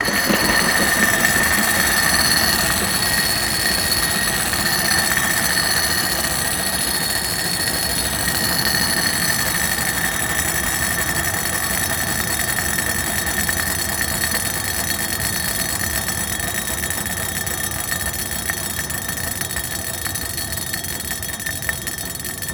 Is friction slowing something down?
yes